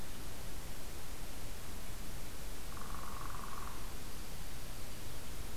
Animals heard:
Northern Flicker (Colaptes auratus), Dark-eyed Junco (Junco hyemalis)

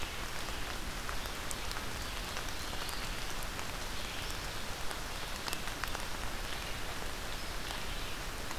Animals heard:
Eastern Wood-Pewee (Contopus virens), Red-eyed Vireo (Vireo olivaceus)

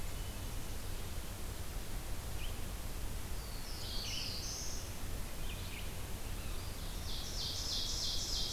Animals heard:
Black-throated Blue Warbler (Setophaga caerulescens), Red-eyed Vireo (Vireo olivaceus), Ovenbird (Seiurus aurocapilla)

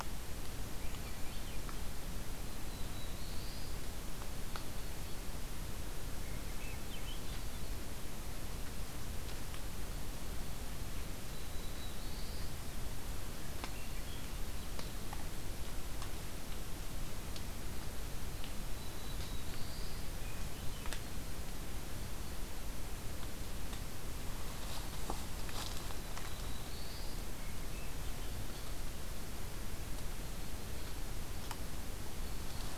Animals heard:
Black-throated Blue Warbler (Setophaga caerulescens), Swainson's Thrush (Catharus ustulatus)

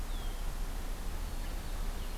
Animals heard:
Red-winged Blackbird (Agelaius phoeniceus)

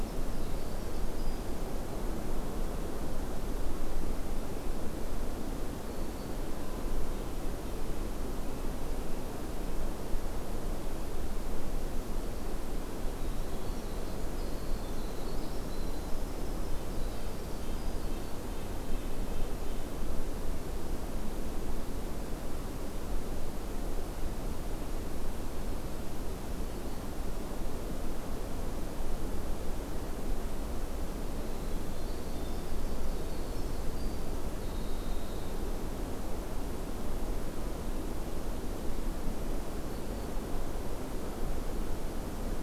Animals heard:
Black-throated Green Warbler (Setophaga virens), Red-breasted Nuthatch (Sitta canadensis), Winter Wren (Troglodytes hiemalis)

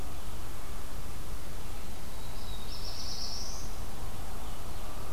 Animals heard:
Black-throated Blue Warbler (Setophaga caerulescens)

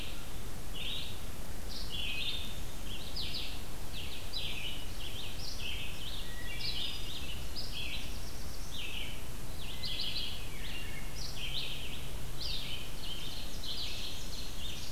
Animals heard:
Wood Thrush (Hylocichla mustelina), Black-throated Blue Warbler (Setophaga caerulescens), Red-eyed Vireo (Vireo olivaceus), Ovenbird (Seiurus aurocapilla), Hermit Thrush (Catharus guttatus)

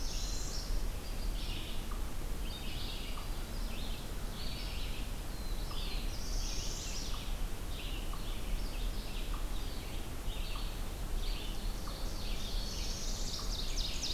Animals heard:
Ovenbird (Seiurus aurocapilla), unknown mammal, Northern Parula (Setophaga americana), Red-eyed Vireo (Vireo olivaceus), Black-throated Blue Warbler (Setophaga caerulescens)

